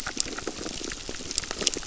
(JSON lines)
{"label": "biophony, crackle", "recorder": "SoundTrap 600"}